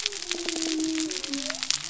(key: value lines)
label: biophony
recorder: SoundTrap 300